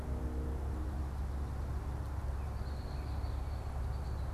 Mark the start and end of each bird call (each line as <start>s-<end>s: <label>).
2.3s-4.3s: Red-winged Blackbird (Agelaius phoeniceus)